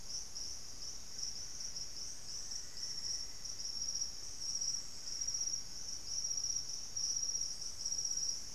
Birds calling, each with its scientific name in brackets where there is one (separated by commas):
White-throated Toucan (Ramphastos tucanus), Plumbeous Antbird (Myrmelastes hyperythrus)